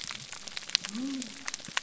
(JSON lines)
{"label": "biophony", "recorder": "SoundTrap 300"}